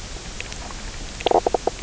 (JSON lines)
{"label": "biophony, knock croak", "recorder": "SoundTrap 300"}